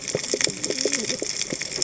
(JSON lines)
{"label": "biophony, cascading saw", "recorder": "HydroMoth"}